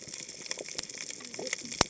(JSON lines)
{"label": "biophony, cascading saw", "recorder": "HydroMoth"}